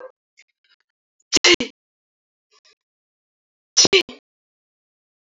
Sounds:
Sneeze